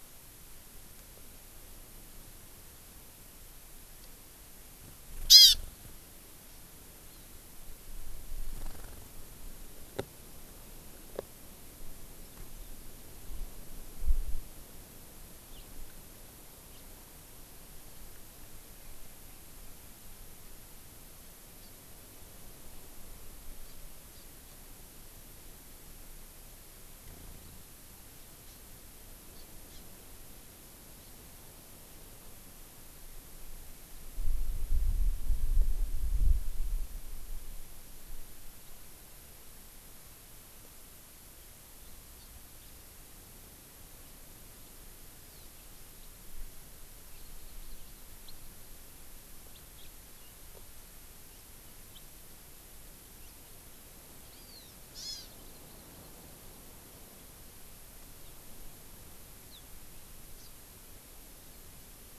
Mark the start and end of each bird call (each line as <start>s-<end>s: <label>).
5.3s-5.6s: Hawaii Amakihi (Chlorodrepanis virens)
7.1s-7.3s: Hawaii Amakihi (Chlorodrepanis virens)
15.5s-15.7s: House Finch (Haemorhous mexicanus)
16.7s-16.9s: House Finch (Haemorhous mexicanus)
21.6s-21.7s: Hawaii Amakihi (Chlorodrepanis virens)
23.7s-23.8s: Hawaii Amakihi (Chlorodrepanis virens)
24.1s-24.6s: Hawaii Amakihi (Chlorodrepanis virens)
28.5s-28.6s: Hawaii Amakihi (Chlorodrepanis virens)
29.3s-29.8s: Hawaii Amakihi (Chlorodrepanis virens)
42.2s-42.3s: Hawaii Amakihi (Chlorodrepanis virens)
42.6s-42.7s: House Finch (Haemorhous mexicanus)
47.2s-48.0s: Hawaii Amakihi (Chlorodrepanis virens)
48.3s-48.4s: House Finch (Haemorhous mexicanus)
49.5s-49.9s: House Finch (Haemorhous mexicanus)
54.3s-56.3s: Hawaii Amakihi (Chlorodrepanis virens)
60.4s-60.5s: Hawaii Amakihi (Chlorodrepanis virens)